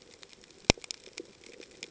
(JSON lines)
{"label": "ambient", "recorder": "HydroMoth"}